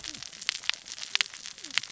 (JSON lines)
{"label": "biophony, cascading saw", "recorder": "SoundTrap 600 or HydroMoth"}